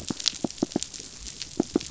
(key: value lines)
label: biophony
recorder: SoundTrap 500